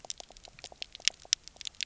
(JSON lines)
{"label": "biophony, pulse", "recorder": "SoundTrap 300"}